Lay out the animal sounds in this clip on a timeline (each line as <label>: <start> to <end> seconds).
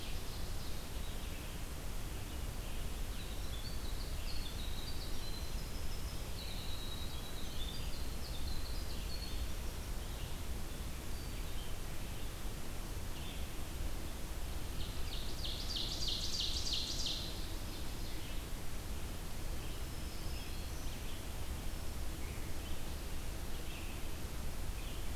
Ovenbird (Seiurus aurocapilla): 0.0 to 1.1 seconds
Red-eyed Vireo (Vireo olivaceus): 0.0 to 25.2 seconds
Winter Wren (Troglodytes hiemalis): 3.1 to 9.9 seconds
Ovenbird (Seiurus aurocapilla): 14.6 to 18.6 seconds
Black-throated Green Warbler (Setophaga virens): 19.6 to 21.0 seconds